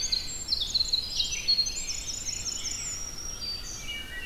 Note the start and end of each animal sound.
[0.00, 3.12] Winter Wren (Troglodytes hiemalis)
[0.00, 4.25] Rose-breasted Grosbeak (Pheucticus ludovicianus)
[2.34, 4.14] Black-throated Green Warbler (Setophaga virens)
[3.65, 4.25] Wood Thrush (Hylocichla mustelina)

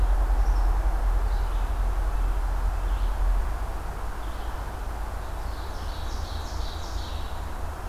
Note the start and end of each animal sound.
[0.00, 7.88] Red-eyed Vireo (Vireo olivaceus)
[5.05, 7.59] Ovenbird (Seiurus aurocapilla)

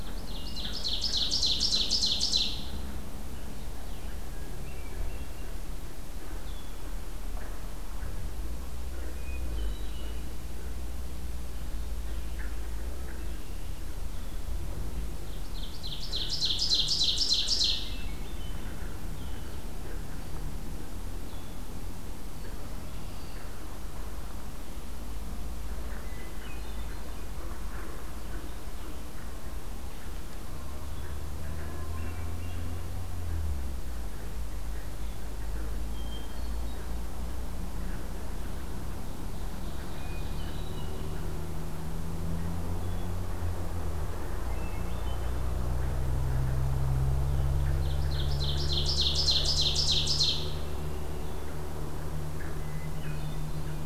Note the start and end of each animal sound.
[0.00, 2.81] Ovenbird (Seiurus aurocapilla)
[3.55, 6.86] Blue-headed Vireo (Vireo solitarius)
[4.25, 5.47] Hermit Thrush (Catharus guttatus)
[9.09, 10.26] Hermit Thrush (Catharus guttatus)
[15.03, 18.01] Ovenbird (Seiurus aurocapilla)
[17.55, 18.88] Hermit Thrush (Catharus guttatus)
[19.00, 21.83] Blue-headed Vireo (Vireo solitarius)
[22.81, 23.52] Red-winged Blackbird (Agelaius phoeniceus)
[26.10, 27.14] Hermit Thrush (Catharus guttatus)
[31.47, 32.82] Hermit Thrush (Catharus guttatus)
[35.73, 36.80] Hermit Thrush (Catharus guttatus)
[39.11, 40.70] Ovenbird (Seiurus aurocapilla)
[39.96, 41.08] Hermit Thrush (Catharus guttatus)
[44.48, 45.44] Hermit Thrush (Catharus guttatus)
[47.76, 50.57] Ovenbird (Seiurus aurocapilla)
[50.49, 51.25] Red-winged Blackbird (Agelaius phoeniceus)
[52.44, 53.61] Hermit Thrush (Catharus guttatus)

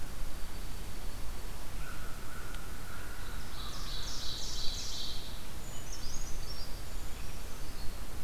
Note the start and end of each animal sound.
[0.00, 1.76] Dark-eyed Junco (Junco hyemalis)
[1.59, 4.94] American Crow (Corvus brachyrhynchos)
[3.17, 5.46] Ovenbird (Seiurus aurocapilla)
[5.47, 8.23] Brown Creeper (Certhia americana)

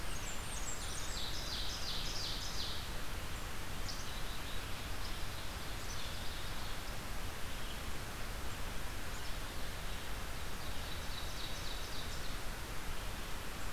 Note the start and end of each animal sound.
[0.00, 1.49] Blackburnian Warbler (Setophaga fusca)
[0.60, 3.03] Ovenbird (Seiurus aurocapilla)
[3.77, 4.71] Black-capped Chickadee (Poecile atricapillus)
[5.65, 6.75] Black-capped Chickadee (Poecile atricapillus)
[9.10, 10.06] Black-capped Chickadee (Poecile atricapillus)
[10.65, 12.14] Ovenbird (Seiurus aurocapilla)

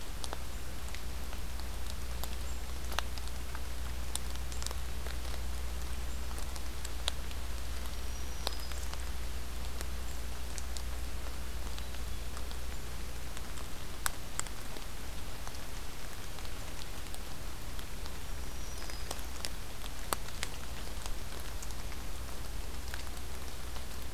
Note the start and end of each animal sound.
[7.91, 8.93] Black-throated Green Warbler (Setophaga virens)
[18.19, 19.19] Black-throated Green Warbler (Setophaga virens)

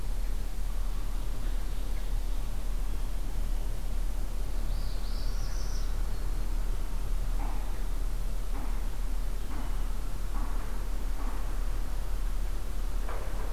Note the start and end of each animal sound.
[0.20, 2.80] Ovenbird (Seiurus aurocapilla)
[4.51, 6.04] Northern Parula (Setophaga americana)

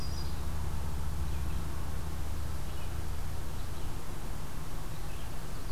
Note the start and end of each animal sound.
[0.00, 5.72] Red-eyed Vireo (Vireo olivaceus)

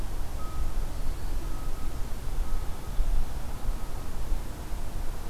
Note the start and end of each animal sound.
[0.44, 1.58] Black-throated Green Warbler (Setophaga virens)

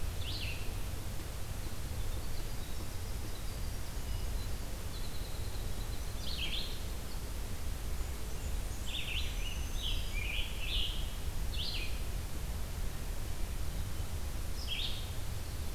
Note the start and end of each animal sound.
[0.00, 0.77] Red-eyed Vireo (Vireo olivaceus)
[1.50, 7.34] Winter Wren (Troglodytes hiemalis)
[6.14, 15.74] Red-eyed Vireo (Vireo olivaceus)
[7.81, 8.95] Blackburnian Warbler (Setophaga fusca)
[9.09, 10.34] Black-throated Green Warbler (Setophaga virens)
[9.15, 11.17] Scarlet Tanager (Piranga olivacea)

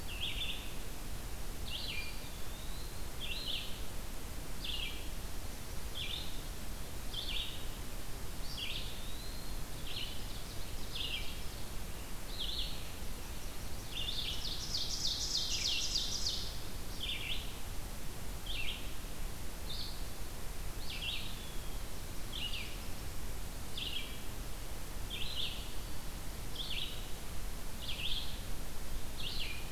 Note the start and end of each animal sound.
[0.00, 17.47] Red-eyed Vireo (Vireo olivaceus)
[1.58, 3.46] Eastern Wood-Pewee (Contopus virens)
[8.40, 9.66] Eastern Wood-Pewee (Contopus virens)
[9.50, 11.59] Ovenbird (Seiurus aurocapilla)
[12.75, 14.52] Yellow-rumped Warbler (Setophaga coronata)
[13.72, 16.69] Ovenbird (Seiurus aurocapilla)
[18.26, 29.71] Red-eyed Vireo (Vireo olivaceus)
[20.76, 21.85] Eastern Wood-Pewee (Contopus virens)
[21.78, 23.39] Yellow-rumped Warbler (Setophaga coronata)
[25.39, 26.10] Black-throated Green Warbler (Setophaga virens)

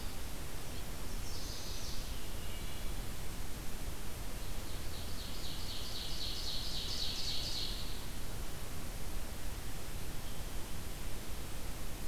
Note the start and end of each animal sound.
[0.99, 2.08] Chestnut-sided Warbler (Setophaga pensylvanica)
[2.18, 3.01] Wood Thrush (Hylocichla mustelina)
[4.07, 8.25] Ovenbird (Seiurus aurocapilla)

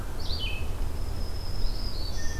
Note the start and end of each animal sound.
[0.09, 2.40] Red-eyed Vireo (Vireo olivaceus)
[0.75, 2.40] Black-throated Green Warbler (Setophaga virens)

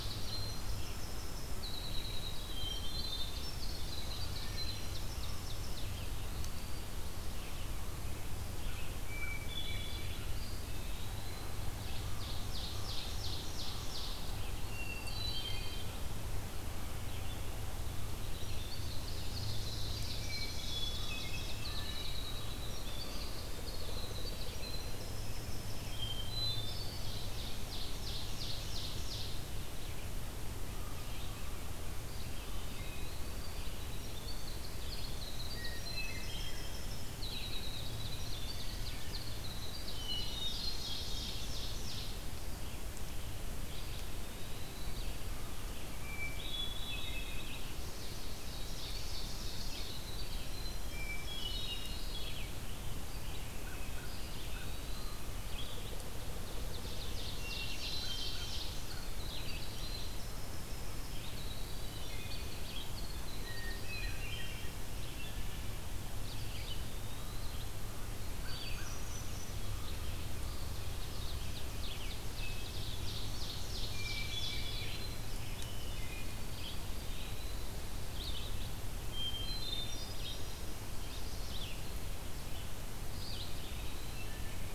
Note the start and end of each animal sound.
[0.00, 56.08] Red-eyed Vireo (Vireo olivaceus)
[0.18, 5.80] Winter Wren (Troglodytes hiemalis)
[2.47, 3.38] Hermit Thrush (Catharus guttatus)
[4.47, 5.84] Ovenbird (Seiurus aurocapilla)
[5.91, 6.97] Eastern Wood-Pewee (Contopus virens)
[8.90, 10.14] Hermit Thrush (Catharus guttatus)
[10.22, 11.53] Eastern Wood-Pewee (Contopus virens)
[11.93, 13.85] American Crow (Corvus brachyrhynchos)
[12.00, 14.41] Ovenbird (Seiurus aurocapilla)
[14.24, 15.26] Eastern Wood-Pewee (Contopus virens)
[14.59, 16.00] Hermit Thrush (Catharus guttatus)
[18.15, 26.06] Winter Wren (Troglodytes hiemalis)
[18.39, 20.44] Ovenbird (Seiurus aurocapilla)
[20.07, 22.09] Hermit Thrush (Catharus guttatus)
[25.92, 27.01] Hermit Thrush (Catharus guttatus)
[26.97, 29.49] Ovenbird (Seiurus aurocapilla)
[31.99, 33.47] Eastern Wood-Pewee (Contopus virens)
[33.26, 40.04] Winter Wren (Troglodytes hiemalis)
[35.38, 36.66] Hermit Thrush (Catharus guttatus)
[37.77, 39.27] Ovenbird (Seiurus aurocapilla)
[39.97, 41.37] Hermit Thrush (Catharus guttatus)
[40.50, 42.15] Ovenbird (Seiurus aurocapilla)
[43.65, 45.15] Eastern Wood-Pewee (Contopus virens)
[45.92, 47.46] Hermit Thrush (Catharus guttatus)
[46.30, 47.63] Eastern Wood-Pewee (Contopus virens)
[47.66, 49.98] Ovenbird (Seiurus aurocapilla)
[48.90, 52.34] Winter Wren (Troglodytes hiemalis)
[50.87, 52.35] Hermit Thrush (Catharus guttatus)
[53.59, 55.32] American Crow (Corvus brachyrhynchos)
[53.97, 55.27] Eastern Wood-Pewee (Contopus virens)
[56.32, 58.75] Ovenbird (Seiurus aurocapilla)
[57.32, 58.43] Hermit Thrush (Catharus guttatus)
[57.36, 84.74] Red-eyed Vireo (Vireo olivaceus)
[59.16, 64.80] Winter Wren (Troglodytes hiemalis)
[63.28, 64.77] Hermit Thrush (Catharus guttatus)
[66.40, 67.70] Eastern Wood-Pewee (Contopus virens)
[68.28, 69.57] Hermit Thrush (Catharus guttatus)
[68.31, 68.89] American Crow (Corvus brachyrhynchos)
[70.61, 74.89] Ovenbird (Seiurus aurocapilla)
[73.85, 76.52] Hermit Thrush (Catharus guttatus)
[75.50, 77.84] Eastern Wood-Pewee (Contopus virens)
[78.95, 80.80] Hermit Thrush (Catharus guttatus)
[83.48, 84.36] Eastern Wood-Pewee (Contopus virens)

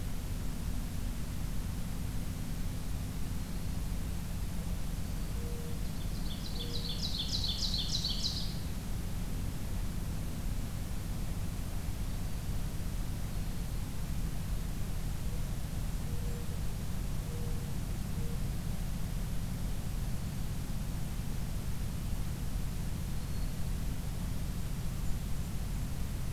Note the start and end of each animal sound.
[4.55, 7.00] Mourning Dove (Zenaida macroura)
[4.86, 5.42] Black-throated Green Warbler (Setophaga virens)
[5.64, 8.56] Ovenbird (Seiurus aurocapilla)
[15.79, 16.62] Blackburnian Warbler (Setophaga fusca)
[15.85, 18.48] Mourning Dove (Zenaida macroura)
[22.91, 23.66] Black-throated Green Warbler (Setophaga virens)
[24.27, 25.85] Blackburnian Warbler (Setophaga fusca)

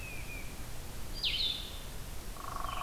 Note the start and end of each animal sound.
[0.00, 0.56] unidentified call
[0.00, 2.82] Blue-headed Vireo (Vireo solitarius)
[0.00, 2.82] Red-eyed Vireo (Vireo olivaceus)
[2.19, 2.82] Hairy Woodpecker (Dryobates villosus)

